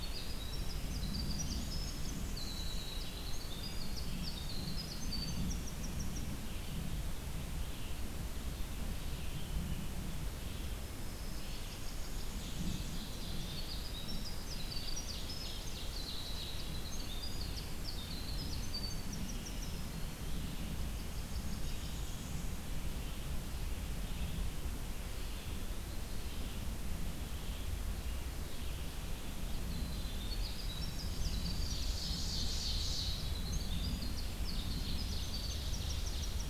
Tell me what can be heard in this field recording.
Winter Wren, Red-eyed Vireo, Blackburnian Warbler, Ovenbird, Eastern Wood-Pewee